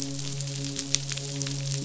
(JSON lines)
{"label": "biophony, midshipman", "recorder": "SoundTrap 500"}